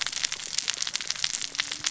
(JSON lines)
{"label": "biophony, cascading saw", "recorder": "SoundTrap 600 or HydroMoth"}